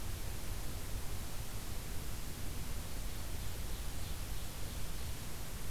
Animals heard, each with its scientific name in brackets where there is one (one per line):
Ovenbird (Seiurus aurocapilla)